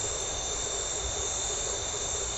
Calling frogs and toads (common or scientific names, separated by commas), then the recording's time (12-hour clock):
blacksmith tree frog
7:15pm